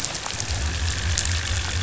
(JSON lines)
{"label": "biophony", "recorder": "SoundTrap 500"}